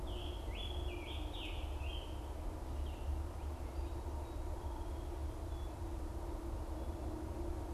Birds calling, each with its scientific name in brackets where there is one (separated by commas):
Scarlet Tanager (Piranga olivacea)